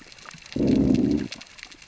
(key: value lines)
label: biophony, growl
recorder: SoundTrap 600 or HydroMoth